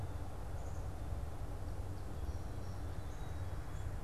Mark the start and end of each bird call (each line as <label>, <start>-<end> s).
Black-capped Chickadee (Poecile atricapillus), 0.6-0.8 s
Song Sparrow (Melospiza melodia), 1.8-4.0 s